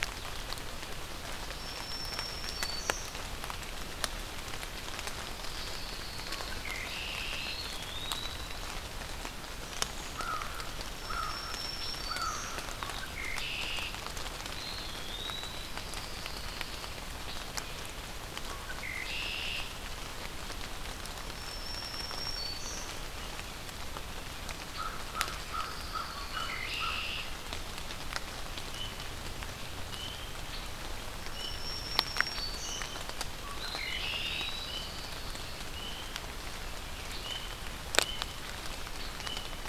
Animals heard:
Eastern Wood-Pewee (Contopus virens)
Red-winged Blackbird (Agelaius phoeniceus)
Black-throated Green Warbler (Setophaga virens)
unidentified call
American Crow (Corvus brachyrhynchos)
Pine Warbler (Setophaga pinus)

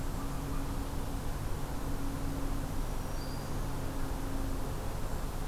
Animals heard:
Black-throated Green Warbler (Setophaga virens)

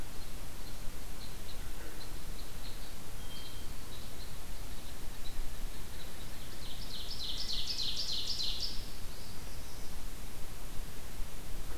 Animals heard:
Hermit Thrush (Catharus guttatus)
Ovenbird (Seiurus aurocapilla)
Red Squirrel (Tamiasciurus hudsonicus)
Northern Parula (Setophaga americana)

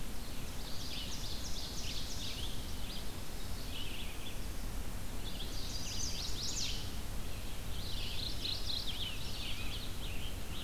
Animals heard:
Red-eyed Vireo (Vireo olivaceus)
Chestnut-sided Warbler (Setophaga pensylvanica)
Mourning Warbler (Geothlypis philadelphia)
Scarlet Tanager (Piranga olivacea)
Ovenbird (Seiurus aurocapilla)

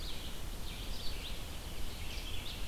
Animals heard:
Red-eyed Vireo (Vireo olivaceus)

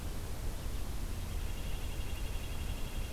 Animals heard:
Red-breasted Nuthatch (Sitta canadensis)

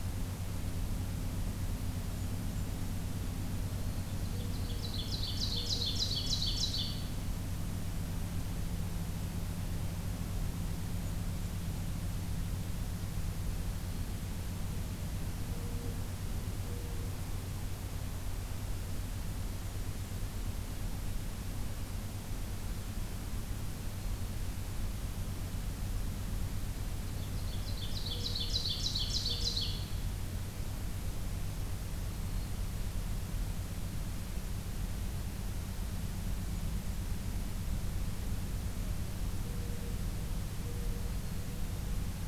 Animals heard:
Black-throated Green Warbler (Setophaga virens)
Blackburnian Warbler (Setophaga fusca)
Mourning Dove (Zenaida macroura)
Ovenbird (Seiurus aurocapilla)

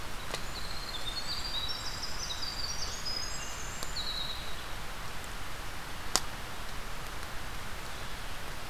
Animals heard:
Blackburnian Warbler (Setophaga fusca)
Winter Wren (Troglodytes hiemalis)

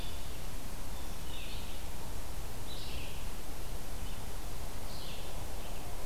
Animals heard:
Red-eyed Vireo (Vireo olivaceus)

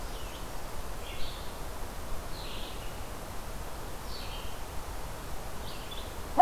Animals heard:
Red-eyed Vireo (Vireo olivaceus)

